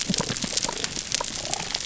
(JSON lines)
{"label": "biophony, damselfish", "recorder": "SoundTrap 300"}